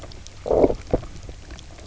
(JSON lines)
{"label": "biophony, low growl", "recorder": "SoundTrap 300"}